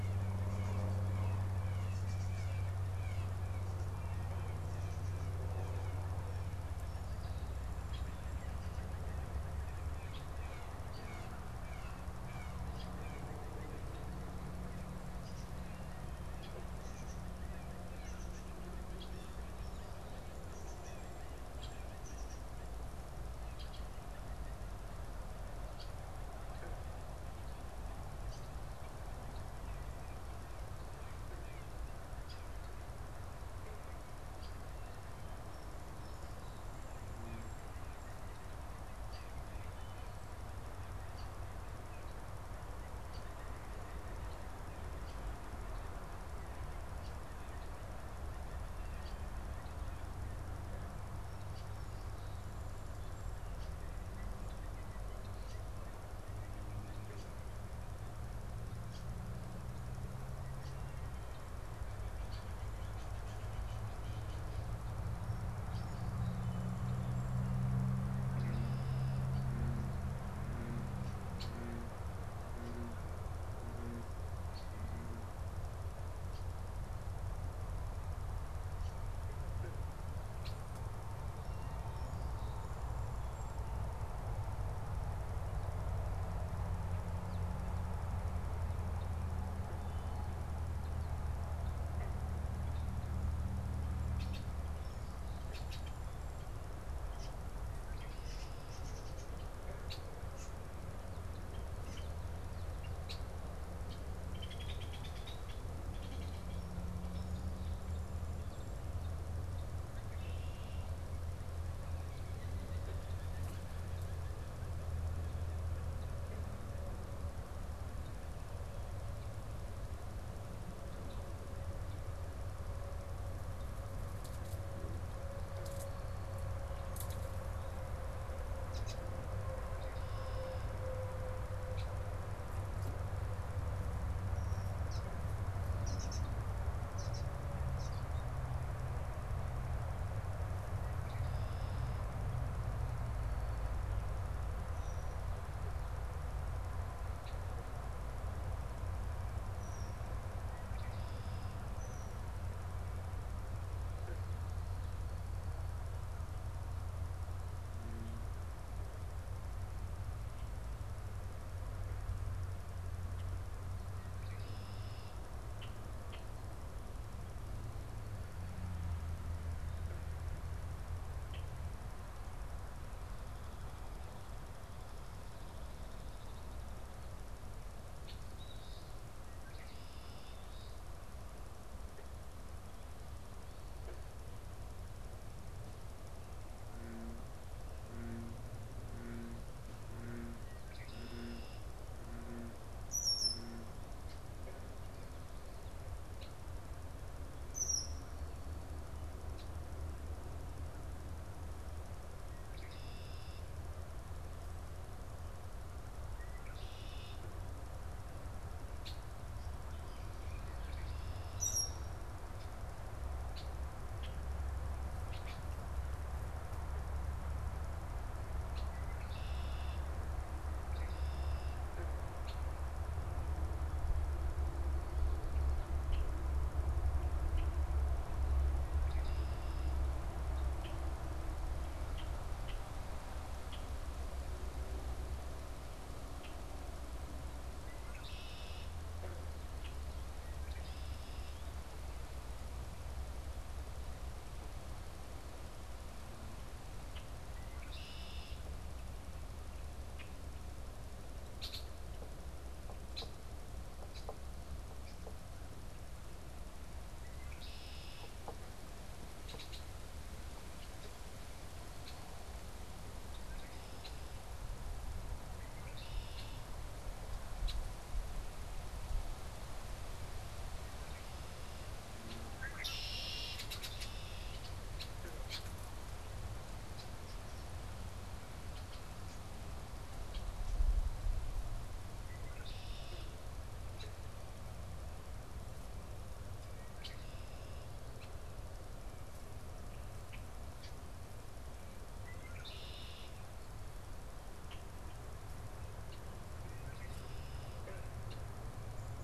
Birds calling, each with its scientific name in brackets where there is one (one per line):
Red-winged Blackbird (Agelaius phoeniceus)
Eastern Phoebe (Sayornis phoebe)
Song Sparrow (Melospiza melodia)
Blue Jay (Cyanocitta cristata)
unidentified bird